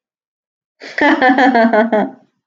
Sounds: Laughter